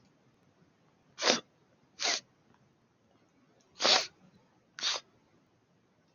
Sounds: Sniff